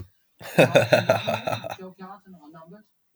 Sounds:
Laughter